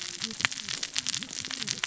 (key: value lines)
label: biophony, cascading saw
recorder: SoundTrap 600 or HydroMoth